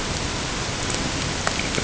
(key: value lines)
label: ambient
recorder: HydroMoth